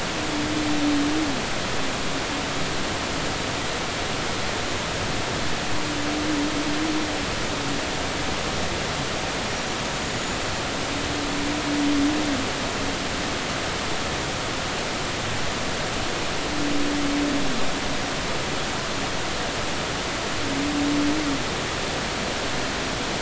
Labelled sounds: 10.0	10.4	humpback whale, 6.8 to 7.1 kHz

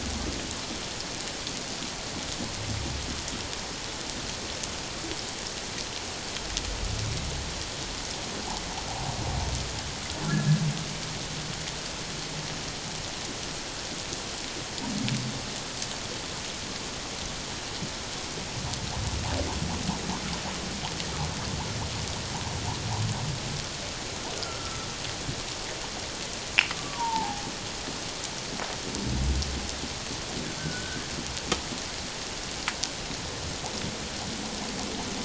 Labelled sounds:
10.3	10.5	humpback whale, 1.6 to 1.8 kHz
24.4	24.9	humpback whale, 1.3 to 1.5 kHz
26.8	27.4	humpback whale, 0.78 to 1.2 kHz
30.6	31.0	humpback whale, 1.4 to 1.6 kHz

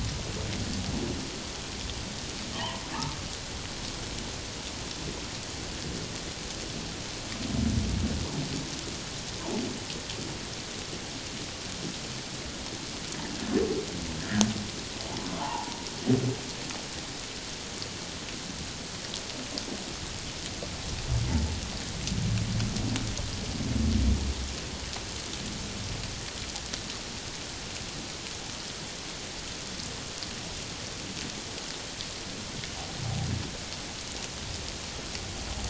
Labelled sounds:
2.5	2.8	humpback whale, 0.78 to 2.0 kHz
15.3	15.8	humpback whale, 0.78 to 1.2 kHz

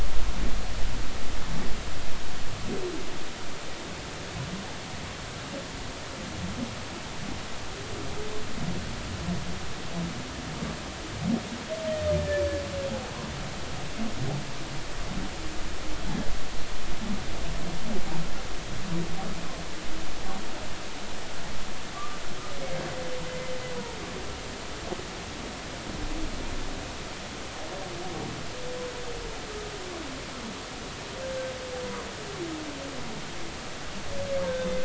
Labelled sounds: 21.9	22.2	humpback whale, 1.1 to 1.2 kHz
23.3	23.5	humpback whale, 2.0 to 2.2 kHz
34.4	34.8	humpback whale, 1.5 to 3.7 kHz

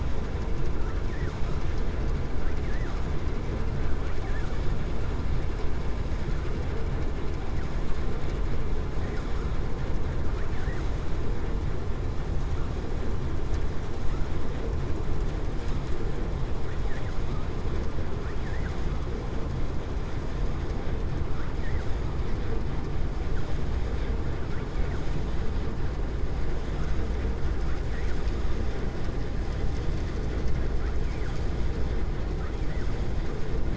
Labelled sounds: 10.3	10.9	vessel noise, 0.74 to 2.6 kHz

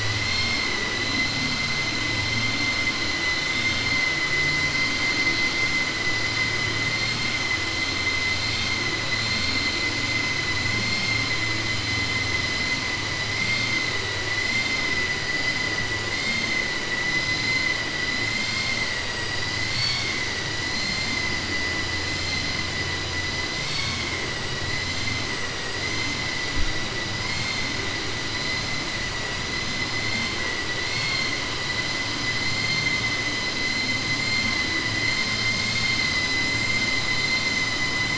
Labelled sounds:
23.5	24.1	vessel noise, 2.1 to 6.2 kHz

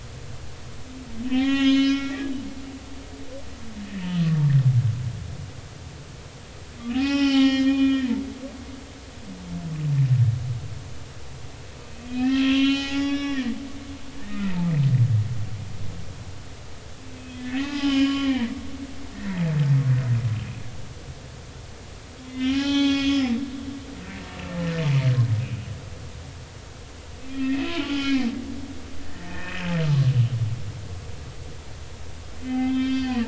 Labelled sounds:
1.2	2.3	humpback whale, 0.80 to 6.6 kHz
3.8	4.1	humpback whale, 2.5 to 2.7 kHz
6.8	8.1	humpback whale, 0.80 to 5.7 kHz
12.0	13.5	humpback whale, 0.80 to 5.7 kHz
14.2	14.7	humpback whale, 0.83 to 2.1 kHz
17.2	18.6	humpback whale, 0.80 to 5.3 kHz
19.1	19.5	humpback whale, 0.83 to 2.2 kHz
22.3	23.4	humpback whale, 0.80 to 5.3 kHz
24.0	24.4	humpback whale, 1.7 to 1.9 kHz
27.3	28.3	humpback whale, 0.80 to 3.4 kHz
29.0	29.6	humpback whale, 1.7 to 2.0 kHz
32.4	33.2	humpback whale, 1.2 to 5.3 kHz

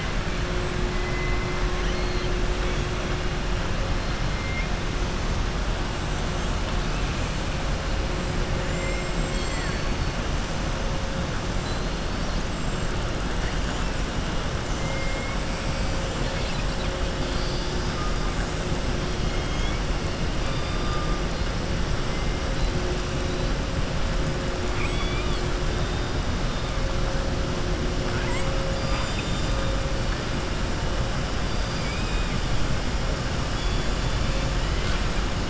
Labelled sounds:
1.7	2.3	killer whale, southern resident, 1.9 to 5.9 kHz
8.6	10.1	killer whale, southern resident, 1.1 to 7.7 kHz
14.8	15.4	killer whale, southern resident, 2.1 to 3.1 kHz
24.7	25.5	killer whale, southern resident, 1.4 to 4.9 kHz
33.5	34.5	killer whale, southern resident, 2.6 to 4.4 kHz

